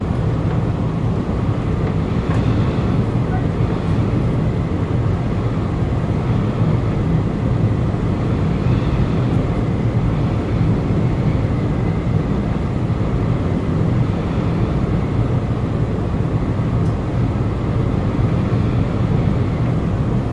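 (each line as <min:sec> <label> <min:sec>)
0:00.0 Strong wind whistles continuously. 0:20.3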